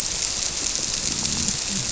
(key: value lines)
label: biophony
recorder: SoundTrap 300